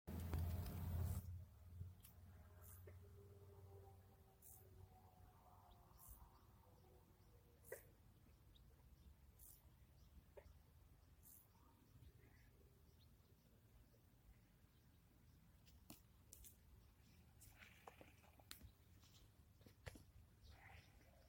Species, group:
Chorthippus brunneus
Orthoptera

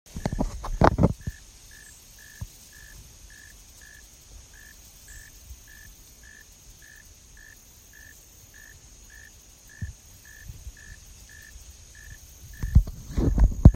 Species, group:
Neocurtilla hexadactyla
Orthoptera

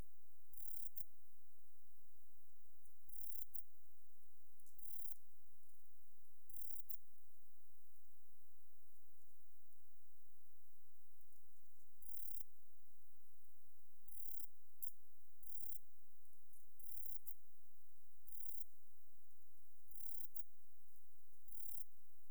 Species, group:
Rhacocleis germanica
Orthoptera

